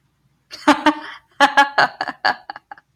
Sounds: Laughter